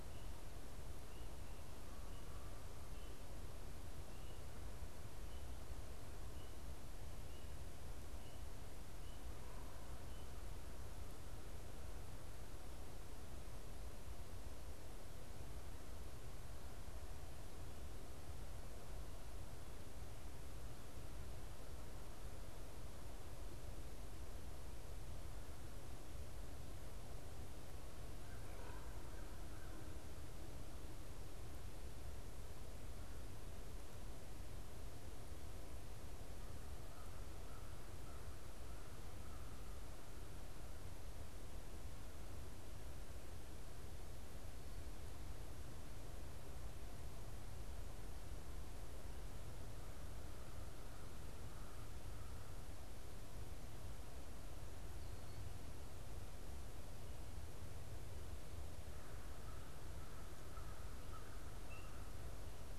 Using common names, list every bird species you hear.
American Crow, Common Raven